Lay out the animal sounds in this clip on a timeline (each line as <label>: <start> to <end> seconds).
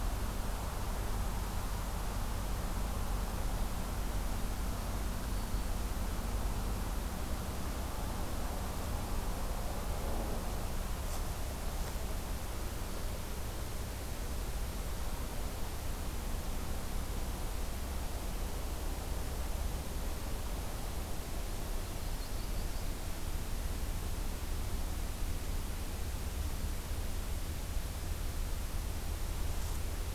Yellow-rumped Warbler (Setophaga coronata): 21.8 to 23.1 seconds